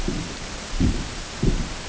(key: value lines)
label: ambient
recorder: HydroMoth